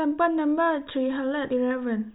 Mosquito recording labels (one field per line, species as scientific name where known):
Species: no mosquito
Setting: cup